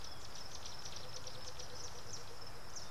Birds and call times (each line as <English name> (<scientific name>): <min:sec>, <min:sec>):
Tawny-flanked Prinia (Prinia subflava): 0:00.6
White-browed Coucal (Centropus superciliosus): 0:01.6